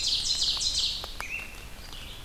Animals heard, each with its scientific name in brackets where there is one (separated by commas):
Ovenbird (Seiurus aurocapilla), Red-eyed Vireo (Vireo olivaceus), American Robin (Turdus migratorius), Blackburnian Warbler (Setophaga fusca)